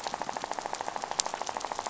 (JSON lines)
{"label": "biophony, rattle", "recorder": "SoundTrap 500"}